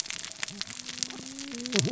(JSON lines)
{"label": "biophony, cascading saw", "recorder": "SoundTrap 600 or HydroMoth"}